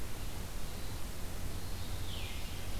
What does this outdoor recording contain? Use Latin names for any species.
Catharus fuscescens